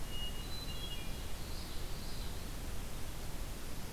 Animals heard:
Hermit Thrush (Catharus guttatus), Common Yellowthroat (Geothlypis trichas)

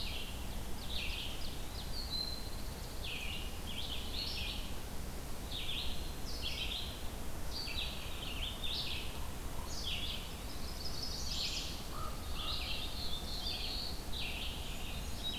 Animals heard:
Brown Creeper (Certhia americana), Ovenbird (Seiurus aurocapilla), Red-eyed Vireo (Vireo olivaceus), American Crow (Corvus brachyrhynchos), Pine Warbler (Setophaga pinus), Chimney Swift (Chaetura pelagica), Black-throated Blue Warbler (Setophaga caerulescens)

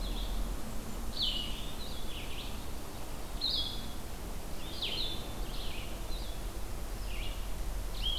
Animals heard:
Red-eyed Vireo (Vireo olivaceus), Blue-headed Vireo (Vireo solitarius), Blackburnian Warbler (Setophaga fusca)

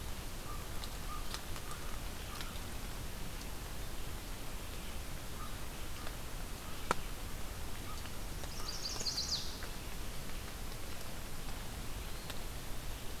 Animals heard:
Chestnut-sided Warbler (Setophaga pensylvanica), American Crow (Corvus brachyrhynchos)

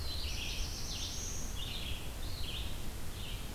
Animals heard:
Red-eyed Vireo (Vireo olivaceus), Black-throated Blue Warbler (Setophaga caerulescens)

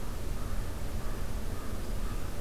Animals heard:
American Crow (Corvus brachyrhynchos)

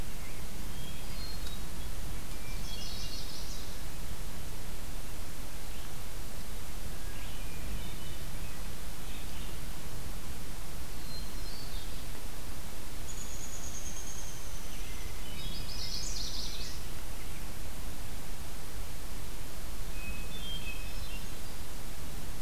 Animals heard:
unidentified call, Downy Woodpecker (Dryobates pubescens), Hermit Thrush (Catharus guttatus), Chestnut-sided Warbler (Setophaga pensylvanica)

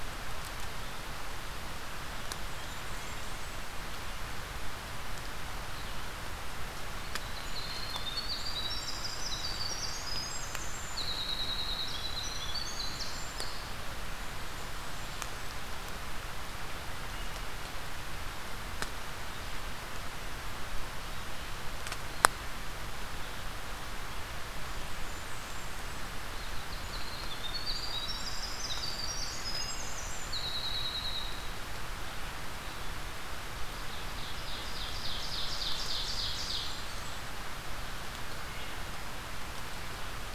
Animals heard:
Winter Wren (Troglodytes hiemalis), Ovenbird (Seiurus aurocapilla), Blackburnian Warbler (Setophaga fusca)

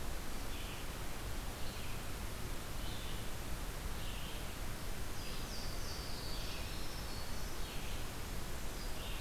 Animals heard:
Black-throated Green Warbler (Setophaga virens), Red-eyed Vireo (Vireo olivaceus), Louisiana Waterthrush (Parkesia motacilla)

